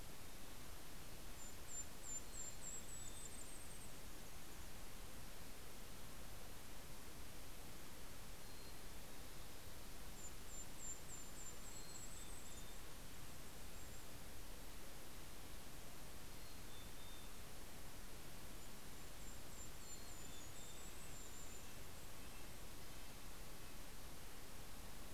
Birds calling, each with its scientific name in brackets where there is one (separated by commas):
Golden-crowned Kinglet (Regulus satrapa), Red-breasted Nuthatch (Sitta canadensis), Mountain Chickadee (Poecile gambeli)